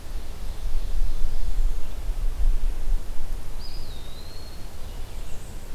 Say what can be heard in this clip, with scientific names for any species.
Seiurus aurocapilla, Contopus virens, Setophaga castanea